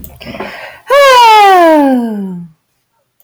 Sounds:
Sigh